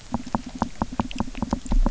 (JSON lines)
{"label": "biophony, knock", "recorder": "SoundTrap 300"}